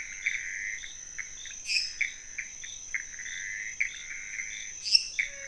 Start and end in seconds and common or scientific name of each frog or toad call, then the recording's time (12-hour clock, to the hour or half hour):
0.0	5.4	pointedbelly frog
0.0	5.4	Pithecopus azureus
1.6	2.3	lesser tree frog
4.8	5.3	lesser tree frog
~1am